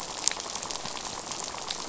{"label": "biophony, rattle", "recorder": "SoundTrap 500"}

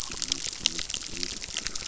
{"label": "biophony", "recorder": "SoundTrap 600"}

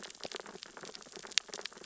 {"label": "biophony, sea urchins (Echinidae)", "recorder": "SoundTrap 600 or HydroMoth"}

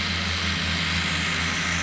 {"label": "anthrophony, boat engine", "recorder": "SoundTrap 500"}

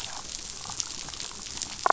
{"label": "biophony, damselfish", "recorder": "SoundTrap 500"}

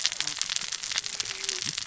{"label": "biophony, cascading saw", "recorder": "SoundTrap 600 or HydroMoth"}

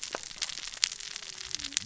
{"label": "biophony, cascading saw", "recorder": "SoundTrap 600 or HydroMoth"}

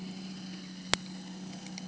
{"label": "anthrophony, boat engine", "recorder": "HydroMoth"}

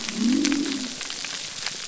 {"label": "biophony", "recorder": "SoundTrap 300"}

